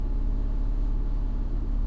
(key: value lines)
label: anthrophony, boat engine
recorder: SoundTrap 300